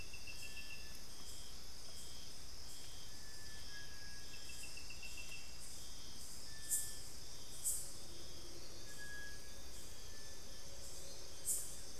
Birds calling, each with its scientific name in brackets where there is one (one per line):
Little Tinamou (Crypturellus soui)